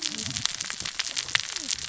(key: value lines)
label: biophony, cascading saw
recorder: SoundTrap 600 or HydroMoth